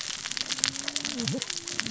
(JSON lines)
{"label": "biophony, cascading saw", "recorder": "SoundTrap 600 or HydroMoth"}